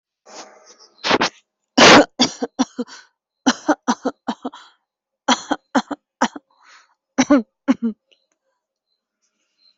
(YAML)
expert_labels:
- quality: good
  cough_type: dry
  dyspnea: false
  wheezing: false
  stridor: false
  choking: false
  congestion: false
  nothing: true
  diagnosis: upper respiratory tract infection
  severity: mild
age: 48
gender: female
respiratory_condition: true
fever_muscle_pain: true
status: COVID-19